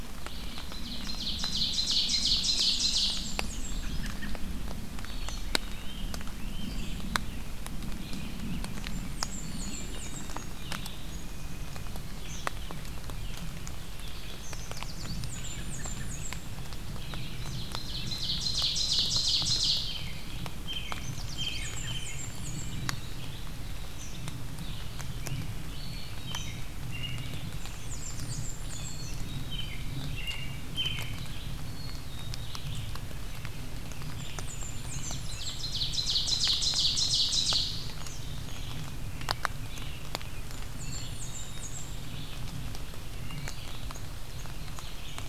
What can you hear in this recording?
Red-eyed Vireo, Ovenbird, Blackburnian Warbler, American Robin, Black-capped Chickadee, Great Crested Flycatcher, Eastern Kingbird, Yellow Warbler